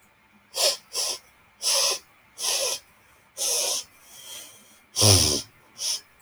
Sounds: Sniff